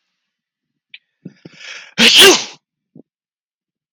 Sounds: Sneeze